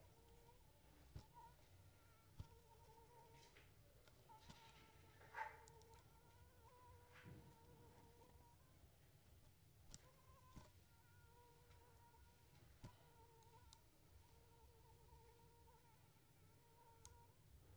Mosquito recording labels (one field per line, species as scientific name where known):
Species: Anopheles arabiensis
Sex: female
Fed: unfed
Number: one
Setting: cup